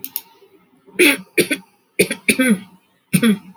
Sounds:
Throat clearing